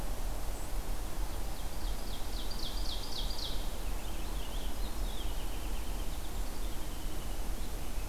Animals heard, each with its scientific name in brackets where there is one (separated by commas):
Ovenbird (Seiurus aurocapilla), Winter Wren (Troglodytes hiemalis)